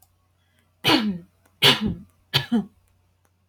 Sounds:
Cough